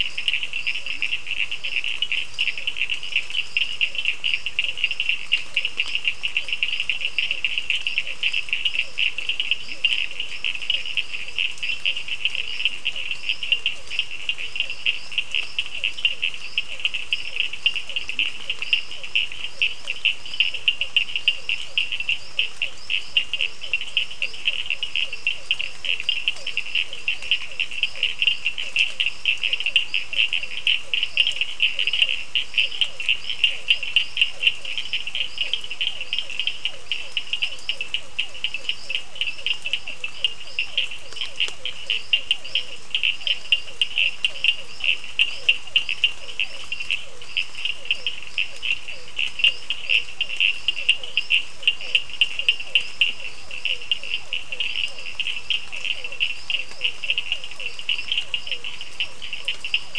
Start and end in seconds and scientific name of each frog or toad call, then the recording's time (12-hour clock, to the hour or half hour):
0.0	59.9	Sphaenorhynchus surdus
6.4	59.7	Physalaemus cuvieri
6:30pm